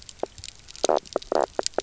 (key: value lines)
label: biophony, knock croak
recorder: SoundTrap 300